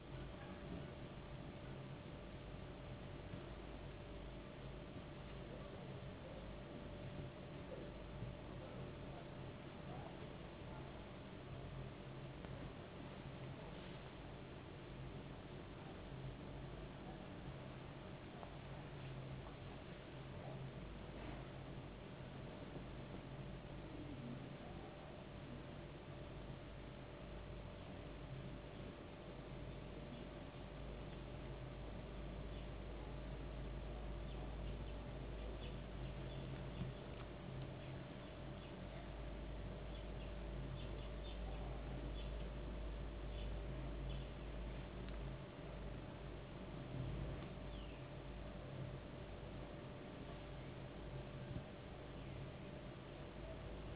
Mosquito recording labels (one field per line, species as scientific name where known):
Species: no mosquito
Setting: insect culture